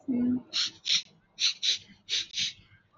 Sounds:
Sniff